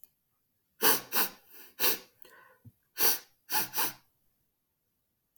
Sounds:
Sniff